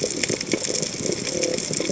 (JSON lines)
{"label": "biophony", "recorder": "HydroMoth"}